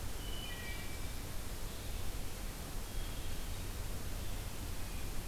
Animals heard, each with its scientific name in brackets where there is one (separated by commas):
Wood Thrush (Hylocichla mustelina)